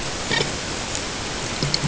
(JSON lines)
{"label": "ambient", "recorder": "HydroMoth"}